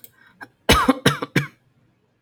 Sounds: Cough